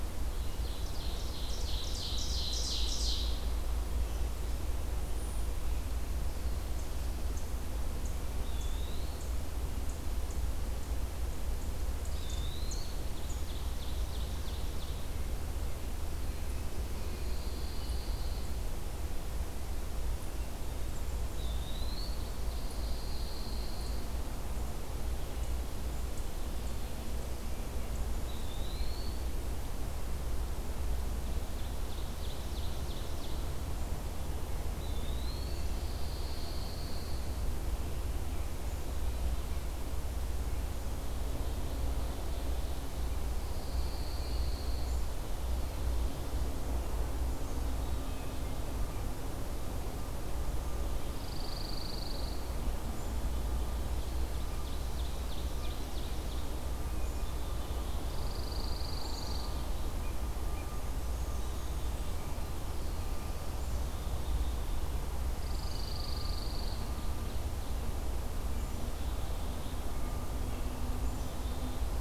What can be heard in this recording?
Ovenbird, Eastern Wood-Pewee, Pine Warbler, Black-capped Chickadee, Hermit Thrush, Blackburnian Warbler, Black-throated Blue Warbler